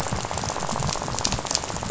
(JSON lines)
{"label": "biophony, rattle", "recorder": "SoundTrap 500"}